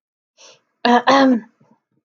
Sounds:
Throat clearing